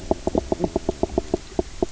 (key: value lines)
label: biophony, knock croak
recorder: SoundTrap 300